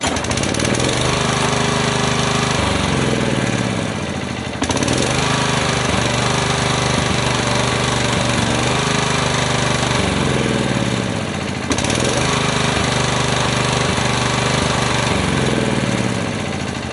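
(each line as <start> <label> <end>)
0.0 An engine and lawnmower motor switch on and off. 16.9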